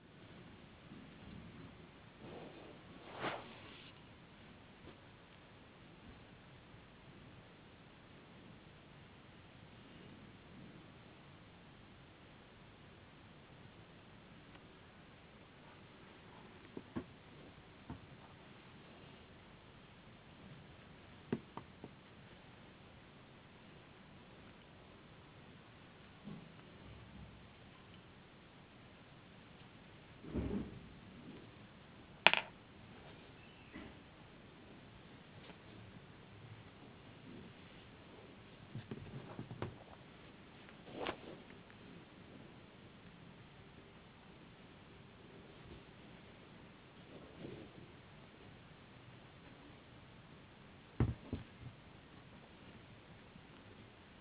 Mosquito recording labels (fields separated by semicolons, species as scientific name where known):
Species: no mosquito; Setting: insect culture